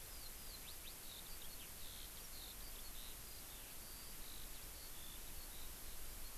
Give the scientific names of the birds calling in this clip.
Alauda arvensis